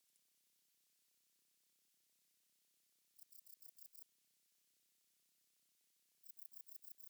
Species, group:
Modestana ebneri, Orthoptera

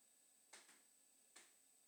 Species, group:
Isophya rectipennis, Orthoptera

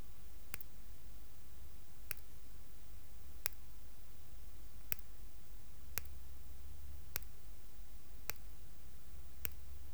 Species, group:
Tylopsis lilifolia, Orthoptera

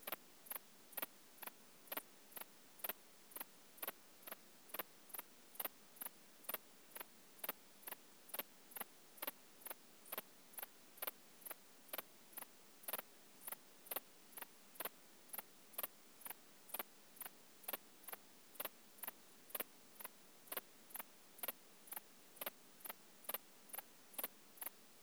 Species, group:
Pholidoptera femorata, Orthoptera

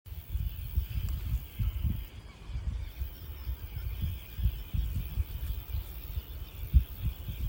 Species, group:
Roeseliana roeselii, Orthoptera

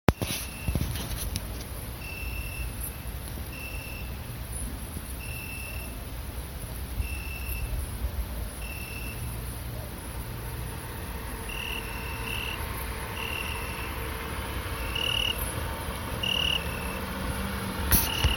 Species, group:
Pholidoptera griseoaptera, Orthoptera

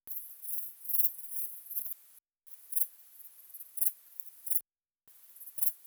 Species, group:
Pholidoptera griseoaptera, Orthoptera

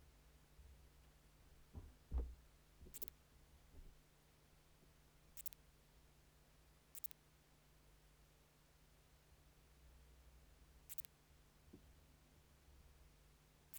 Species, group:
Leptophyes calabra, Orthoptera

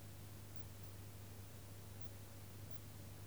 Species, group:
Poecilimon veluchianus, Orthoptera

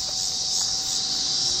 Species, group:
Megatibicen dealbatus, Cicadidae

